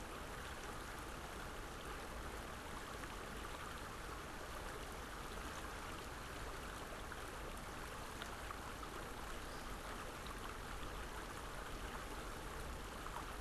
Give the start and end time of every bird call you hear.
[9.32, 9.82] American Woodcock (Scolopax minor)

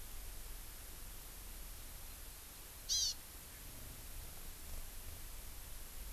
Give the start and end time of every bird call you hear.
[2.85, 3.15] Hawaii Amakihi (Chlorodrepanis virens)

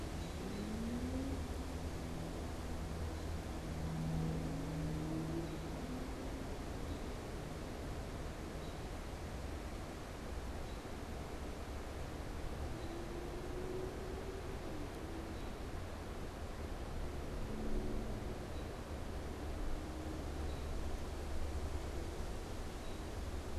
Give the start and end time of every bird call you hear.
[0.00, 23.50] American Robin (Turdus migratorius)

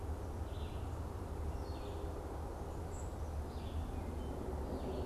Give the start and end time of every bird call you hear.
[0.00, 5.05] Red-eyed Vireo (Vireo olivaceus)
[2.75, 3.15] unidentified bird

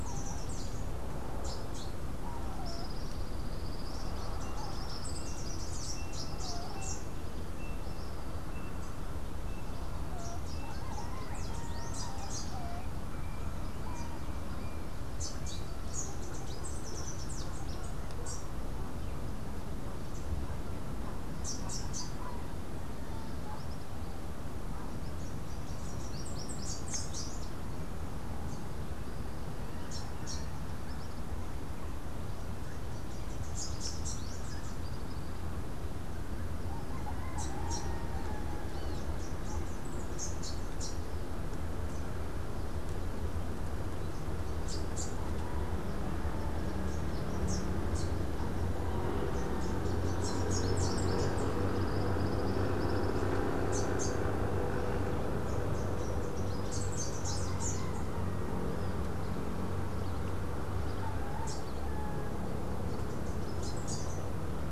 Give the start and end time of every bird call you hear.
[0.00, 1.95] Rufous-capped Warbler (Basileuterus rufifrons)
[2.65, 6.05] Tropical Kingbird (Tyrannus melancholicus)
[4.95, 7.15] Rufous-capped Warbler (Basileuterus rufifrons)
[10.15, 12.65] Rufous-capped Warbler (Basileuterus rufifrons)
[15.05, 18.45] Rufous-capped Warbler (Basileuterus rufifrons)
[21.35, 22.15] Rufous-capped Warbler (Basileuterus rufifrons)
[25.05, 27.75] Rufous-capped Warbler (Basileuterus rufifrons)
[29.75, 35.35] Rufous-capped Warbler (Basileuterus rufifrons)
[37.25, 41.05] Rufous-capped Warbler (Basileuterus rufifrons)
[44.55, 51.45] Rufous-capped Warbler (Basileuterus rufifrons)
[53.55, 58.15] Rufous-capped Warbler (Basileuterus rufifrons)
[61.25, 64.35] Rufous-capped Warbler (Basileuterus rufifrons)

